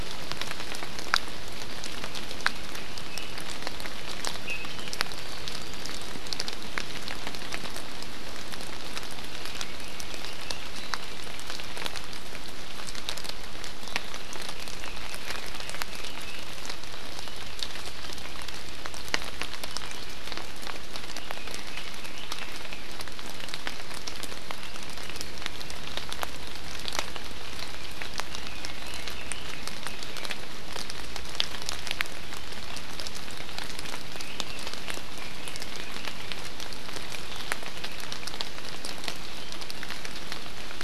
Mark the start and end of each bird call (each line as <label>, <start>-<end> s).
Iiwi (Drepanis coccinea), 3.1-3.3 s
Iiwi (Drepanis coccinea), 4.4-4.7 s
Red-billed Leiothrix (Leiothrix lutea), 21.1-22.9 s
Red-billed Leiothrix (Leiothrix lutea), 28.3-30.3 s
Red-billed Leiothrix (Leiothrix lutea), 34.1-36.3 s